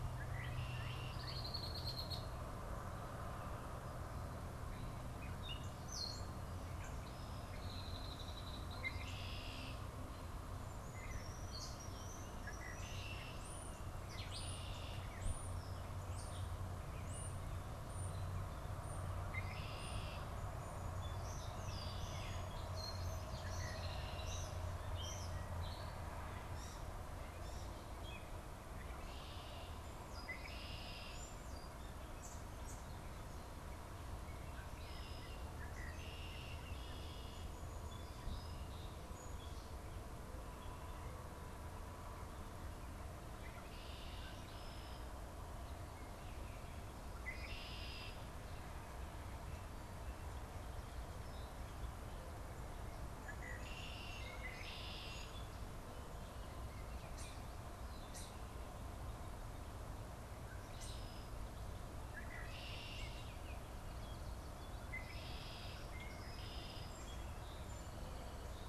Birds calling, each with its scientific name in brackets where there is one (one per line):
European Starling (Sturnus vulgaris)
Red-winged Blackbird (Agelaius phoeniceus)
Gray Catbird (Dumetella carolinensis)
Song Sparrow (Melospiza melodia)